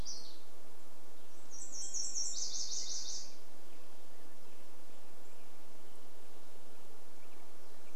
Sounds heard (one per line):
warbler song
Nashville Warbler song
Black-headed Grosbeak song